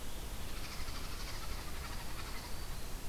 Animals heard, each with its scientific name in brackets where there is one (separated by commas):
unknown mammal, Black-throated Green Warbler (Setophaga virens)